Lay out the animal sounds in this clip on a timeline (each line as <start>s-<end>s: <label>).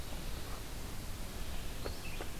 1.7s-2.4s: Red-eyed Vireo (Vireo olivaceus)